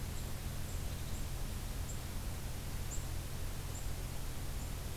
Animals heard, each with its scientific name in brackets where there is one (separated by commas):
Black-capped Chickadee (Poecile atricapillus)